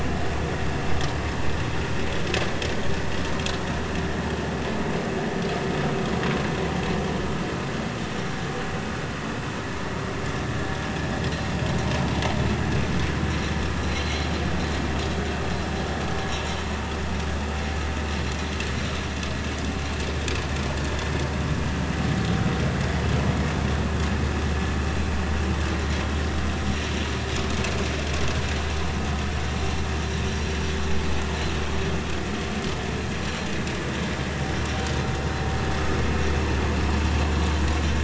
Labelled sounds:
13.8	14.3	vessel noise, 3.8 to 4.2 kHz

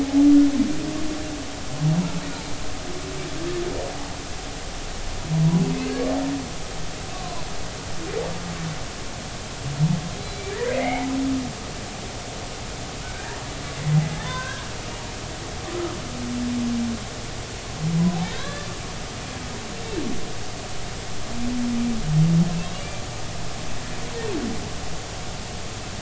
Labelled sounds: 7.1	7.4	humpback whale, 0.93 to 1.2 kHz
10.2	11.1	humpback whale, 0.80 to 4.1 kHz
13.0	13.4	humpback whale, 1.3 to 1.9 kHz
14.2	14.7	humpback whale, 0.96 to 3.7 kHz
18.3	18.7	humpback whale, 1.5 to 4.1 kHz
22.7	23.0	humpback whale, 2.2 to 2.4 kHz

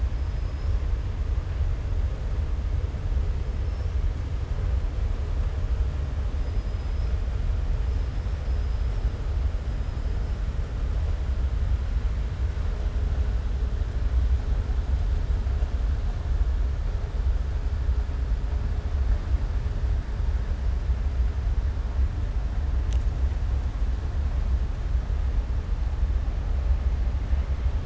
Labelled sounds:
3.6	3.9	killer whale, southern resident, 5.2 to 6.1 kHz
6.4	7.1	killer whale, southern resident, 4.1 to 5.3 kHz

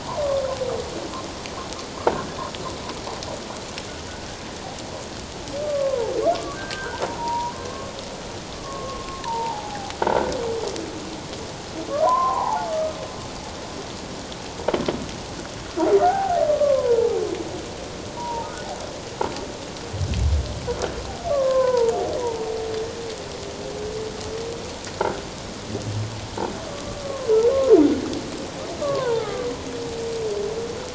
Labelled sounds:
5.6	7.9	humpback whale, 0.78 to 1.6 kHz
8.5	9.9	humpback whale, 0.78 to 1.2 kHz
10.0	10.3	croaking sound likely from a nearby submerged object, 1.3 to 1.6 kHz
12.0	12.7	humpback whale, 0.78 to 1.1 kHz
16.0	17.2	humpback whale, 0.78 to 1.6 kHz
18.1	18.5	humpback whale, 0.84 to 1.0 kHz
21.3	21.9	humpback whale, 0.88 to 1.7 kHz
26.7	27.3	humpback whale, 1.0 to 1.2 kHz
28.8	29.5	humpback whale, 0.78 to 1.8 kHz

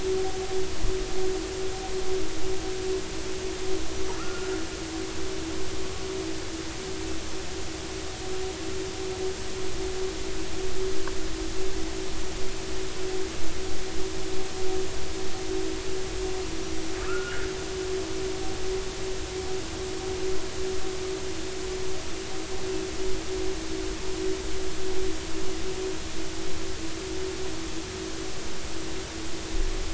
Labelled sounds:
4.2	4.6	killer whale, northern resident, 1.1 to 1.5 kHz
17.0	17.5	killer whale, northern resident, 1.2 to 1.8 kHz

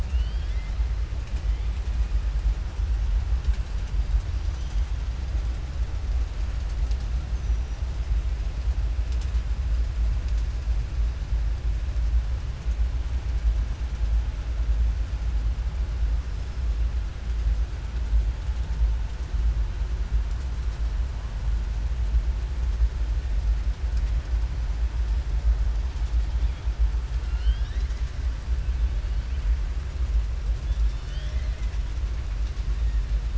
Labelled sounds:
0.0	0.7	killer whale, southern resident, 1.7 to 5.1 kHz

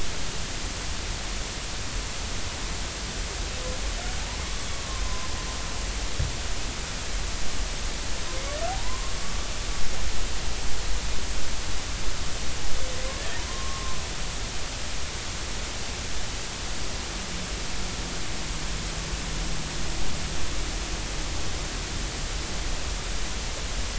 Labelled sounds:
4.7	5.3	humpback whale, 0.96 to 1.2 kHz
8.7	9.5	humpback whale, 0.80 to 1.2 kHz
13.5	14.0	humpback whale, 0.99 to 1.2 kHz

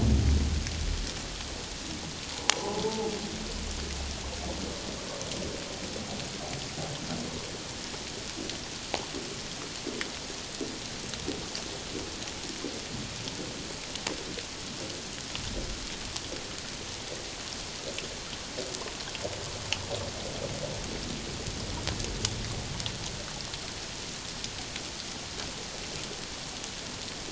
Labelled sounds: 2.3	3.1	humpback whale, 0.78 to 1.1 kHz

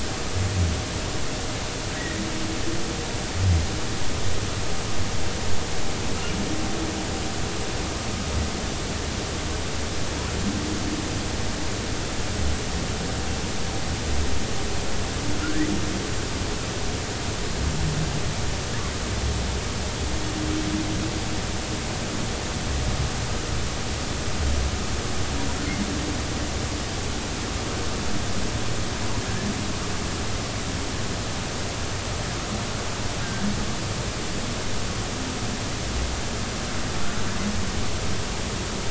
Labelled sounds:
33.2	33.5	humpback whale, 1.5 to 1.8 kHz

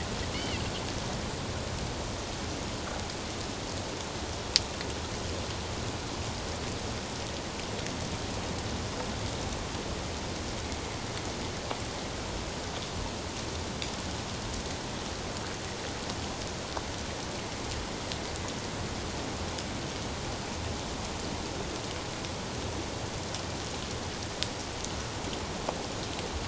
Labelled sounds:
0.3	0.6	Pacific white-sided dolphin, 1.9 to 3.1 kHz

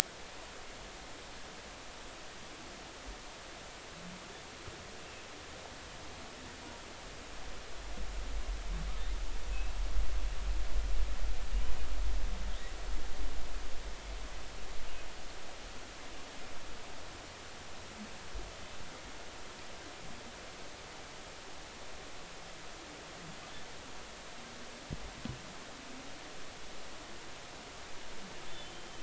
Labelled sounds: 9.5	9.8	humpback whale, 2.5 to 2.8 kHz
28.7	29.0	humpback whale, 3.0 to 3.2 kHz

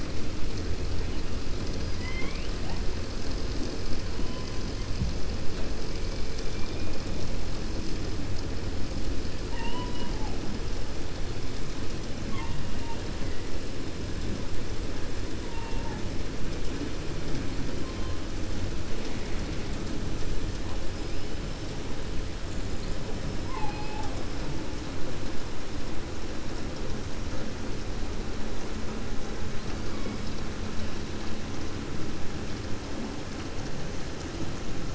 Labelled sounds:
1.9	2.5	killer whale, 1.0 to 3.4 kHz

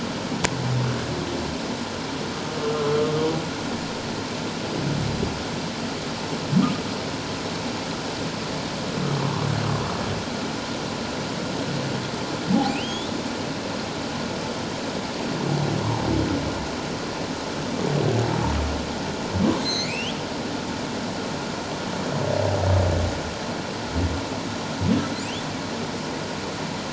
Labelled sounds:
2.7	3.0	humpback whale, 1.3 to 1.4 kHz
12.5	13.1	humpback whale, 0.78 to 3.9 kHz
19.6	20.2	humpback whale, 2.0 to 6.9 kHz

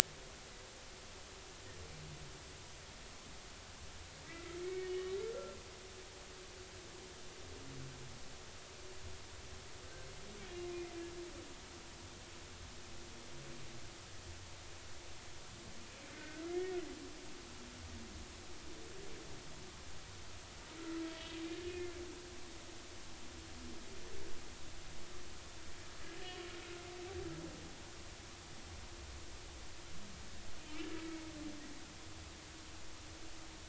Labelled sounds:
4.2	5.2	humpback whale, 1.8 to 3.1 kHz
16.1	16.7	humpback whale, 1.5 to 2.3 kHz
20.8	22.0	humpback whale, 1.2 to 3.4 kHz

